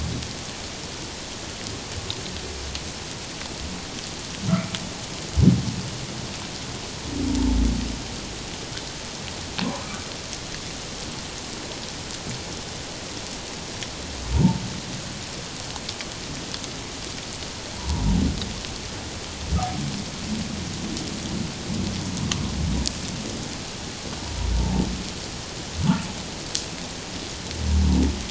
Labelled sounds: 14.3	14.6	humpback whale, 0.84 to 0.97 kHz
17.8	18.2	humpback whale, 0.84 to 1.0 kHz
24.5	24.8	humpback whale, 0.78 to 0.97 kHz

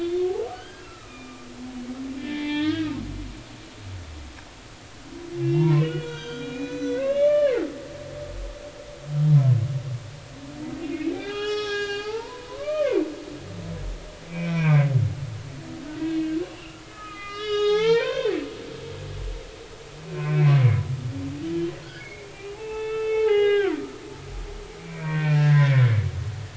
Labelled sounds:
0.0	1.4	humpback whale, 1.2 to 3.6 kHz
2.2	2.9	humpback whale, 0.83 to 4.0 kHz
5.4	7.7	humpback whale, 0.86 to 6.2 kHz
10.9	13.0	humpback whale, 0.80 to 6.6 kHz
14.3	14.9	humpback whale, 0.99 to 2.6 kHz
16.0	18.9	humpback whale, 0.80 to 6.7 kHz
20.1	20.5	humpback whale, 1.4 to 2.6 kHz
21.8	23.7	humpback whale, 0.80 to 3.8 kHz
24.8	25.9	humpback whale, 1.1 to 2.6 kHz

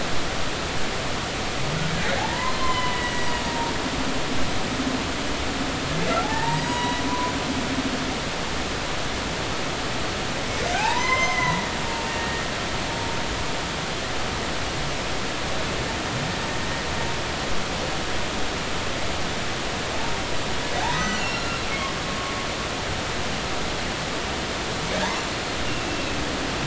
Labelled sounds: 2.2	3.7	humpback whale, 0.80 to 3.1 kHz
6.2	7.3	humpback whale, 0.80 to 7.8 kHz
10.8	11.6	humpback whale, 0.80 to 6.3 kHz
12.2	12.4	humpback whale, 1.7 to 1.9 kHz
20.8	21.6	humpback whale, 0.80 to 6.1 kHz
22.2	22.4	humpback whale, 2.7 to 2.8 kHz

